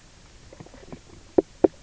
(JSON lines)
{"label": "biophony, knock croak", "recorder": "SoundTrap 300"}